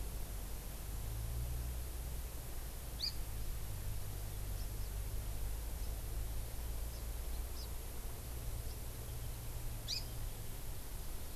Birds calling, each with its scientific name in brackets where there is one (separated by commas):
Hawaii Amakihi (Chlorodrepanis virens)